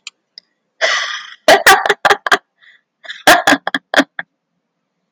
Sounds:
Laughter